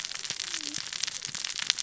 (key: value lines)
label: biophony, cascading saw
recorder: SoundTrap 600 or HydroMoth